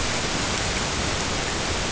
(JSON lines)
{"label": "ambient", "recorder": "HydroMoth"}